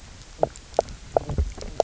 {"label": "biophony, knock croak", "recorder": "SoundTrap 300"}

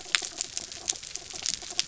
{"label": "anthrophony, mechanical", "recorder": "SoundTrap 300"}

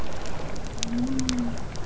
{"label": "biophony", "recorder": "SoundTrap 300"}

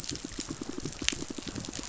{"label": "biophony, pulse", "recorder": "SoundTrap 500"}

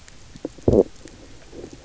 {"label": "biophony, stridulation", "recorder": "SoundTrap 300"}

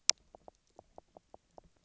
{"label": "biophony, knock croak", "recorder": "SoundTrap 300"}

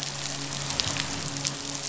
{"label": "biophony, midshipman", "recorder": "SoundTrap 500"}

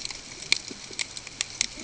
{"label": "ambient", "recorder": "HydroMoth"}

